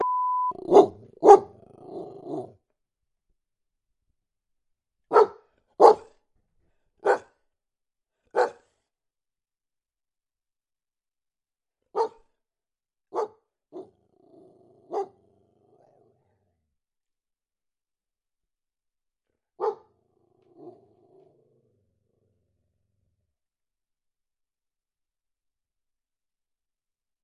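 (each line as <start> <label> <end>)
0.0 A high-pitched sound. 0.6
0.7 A dog barks. 1.4
1.8 A dog growls. 2.5
5.1 A dog barks. 6.0
7.0 A dog barks at a short distance. 7.2
8.3 A dog barks at a short distance. 8.5
11.9 A dog barks at a short distance. 12.1
13.1 A dog barks at a short distance. 13.9
14.2 A dog growls. 16.3
19.6 A dog barks in the distance. 19.8
19.8 A dog growls in the distance. 22.0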